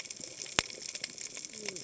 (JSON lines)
{"label": "biophony, cascading saw", "recorder": "HydroMoth"}